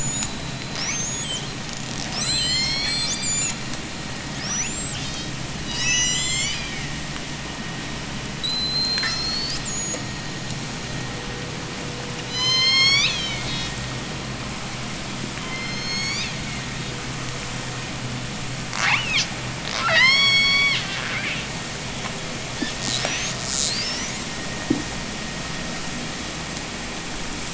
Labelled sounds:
1.9	3.8	killer whale, J pod, 0.80 to 8.0 kHz
4.2	5.4	killer whale, J pod, 0.80 to 8.0 kHz
5.5	7.2	killer whale, J pod, call S01, 1.2 to 8.0 kHz
8.2	10.5	killer whale, J pod, 0.63 to 8.0 kHz
12.2	13.9	killer whale, J pod, call S01, 0.49 to 8.0 kHz
15.3	17.1	killer whale, J pod, call S01, 1.7 to 7.7 kHz
18.6	21.8	killer whale, J pod, 0.30 to 8.0 kHz
22.6	24.4	killer whale, J pod, 0.46 to 8.0 kHz

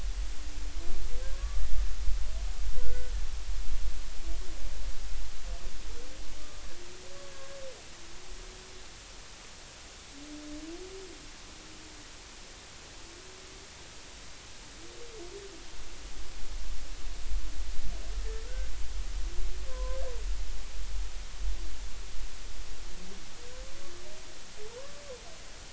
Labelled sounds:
1.3	1.7	humpback whale, 1.0 to 1.2 kHz
2.8	3.1	humpback whale, 1.4 to 1.5 kHz
7.3	7.6	humpback whale, 1.6 to 1.7 kHz
19.7	20.0	humpback whale, 0.93 to 1.1 kHz

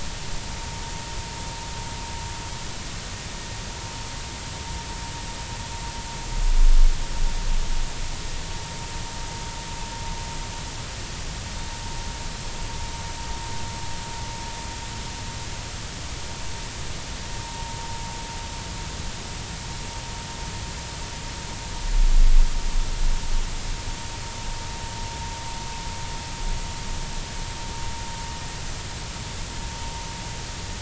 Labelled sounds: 17.4	17.8	vessel noise, 0.80 to 1.1 kHz

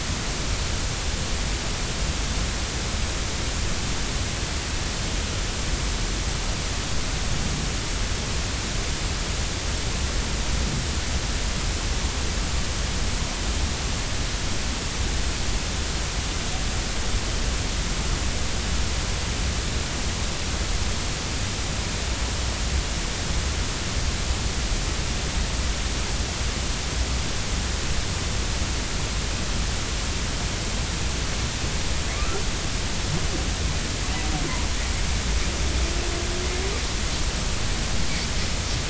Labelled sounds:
32.1	32.4	humpback whale, 1.1 to 1.4 kHz

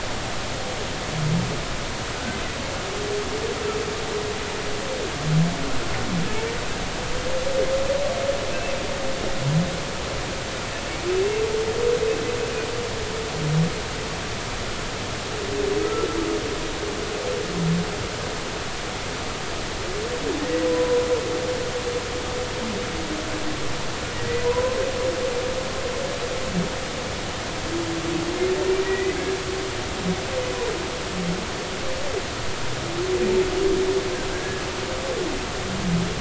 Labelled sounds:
15.8	16.1	humpback whale, 1.2 to 1.4 kHz
20.7	21.0	humpback whale, 0.96 to 1.0 kHz
24.1	24.8	humpback whale, 0.93 to 2.0 kHz
28.8	29.2	humpback whale, 1.9 to 2.1 kHz
34.3	34.6	humpback whale, 1.6 to 1.8 kHz

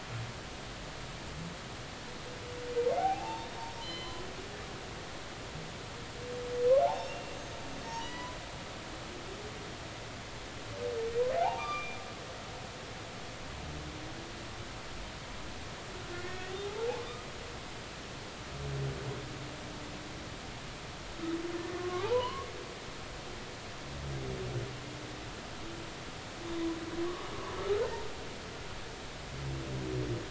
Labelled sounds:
2.9	4.2	humpback whale, 0.80 to 4.2 kHz
6.9	7.6	humpback whale, 2.7 to 6.5 kHz
7.9	8.4	humpback whale, 0.86 to 3.0 kHz
11.4	12.0	humpback whale, 0.80 to 6.1 kHz
16.1	17.0	humpback whale, 0.80 to 2.0 kHz
21.7	22.5	humpback whale, 0.80 to 1.2 kHz

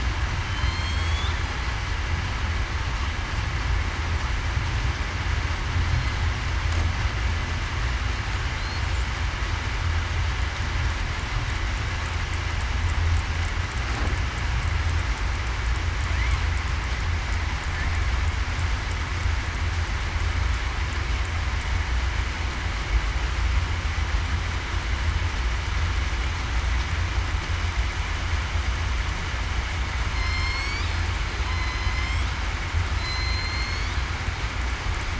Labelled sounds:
0.4	1.3	killer whale, southern resident, 3.0 to 7.8 kHz
30.1	30.7	killer whale, southern resident, 3.1 to 8.0 kHz
31.4	31.9	killer whale, southern resident, 4.0 to 4.1 kHz
33.0	33.9	killer whale, southern resident, 2.0 to 4.7 kHz

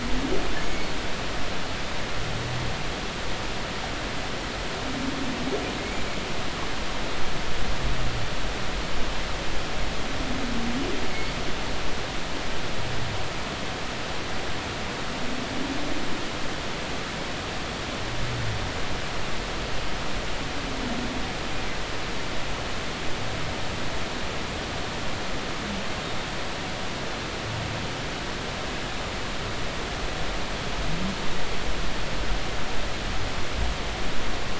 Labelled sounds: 0.6	0.9	humpback whale, 2.1 to 2.3 kHz
5.8	6.0	humpback whale, 2.1 to 2.4 kHz

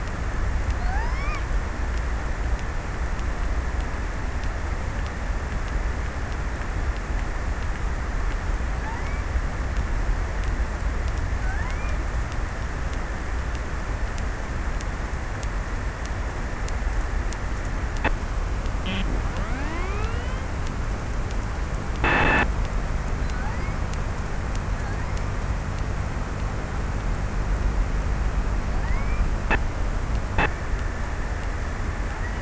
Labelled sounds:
0.5	1.6	killer whale, offshore, 0.47 to 3.7 kHz
8.1	9.5	killer whale, offshore, 0.51 to 2.7 kHz
10.8	12.7	killer whale, offshore, 0.57 to 2.7 kHz
28.3	29.5	killer whale, offshore, 0.35 to 2.6 kHz

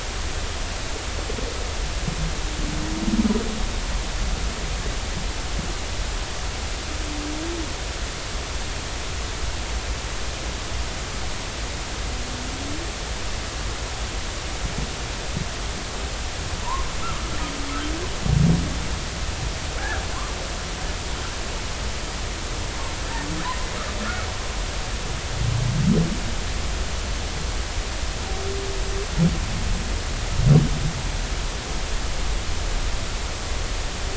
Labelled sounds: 19.8	20.0	humpback whale, 1.3 to 1.8 kHz
24.0	24.3	humpback whale, 1.2 to 1.5 kHz

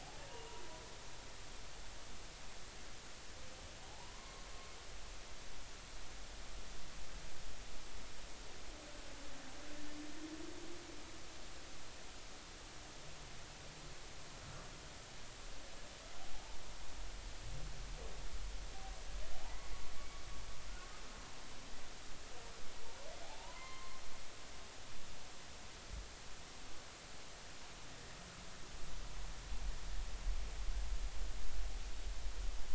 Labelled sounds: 0.0	0.6	humpback whale, 0.80 to 1.0 kHz
3.9	4.5	humpback whale, 0.80 to 1.1 kHz
19.3	19.7	humpback whale, 0.80 to 1.2 kHz
23.2	24.0	humpback whale, 0.80 to 4.4 kHz

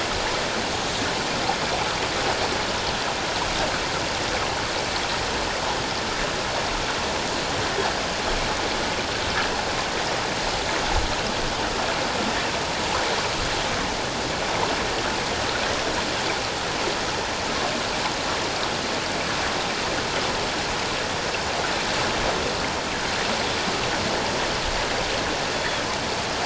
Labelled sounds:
25.5	25.8	Pacific white-sided dolphin, 3.2 to 3.5 kHz

